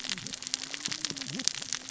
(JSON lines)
{"label": "biophony, cascading saw", "recorder": "SoundTrap 600 or HydroMoth"}